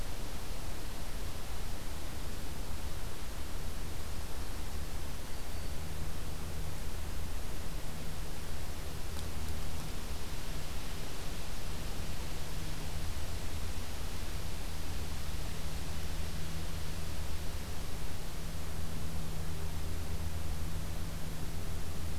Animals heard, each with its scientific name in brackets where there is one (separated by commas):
Black-throated Green Warbler (Setophaga virens)